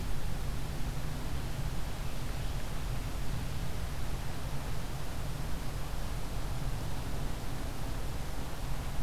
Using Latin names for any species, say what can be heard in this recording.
forest ambience